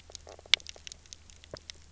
{"label": "biophony, knock croak", "recorder": "SoundTrap 300"}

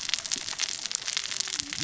{"label": "biophony, cascading saw", "recorder": "SoundTrap 600 or HydroMoth"}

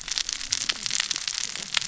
{"label": "biophony, cascading saw", "recorder": "SoundTrap 600 or HydroMoth"}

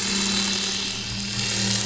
{"label": "anthrophony, boat engine", "recorder": "SoundTrap 500"}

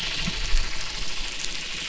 {"label": "anthrophony, boat engine", "recorder": "SoundTrap 300"}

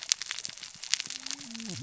{"label": "biophony, cascading saw", "recorder": "SoundTrap 600 or HydroMoth"}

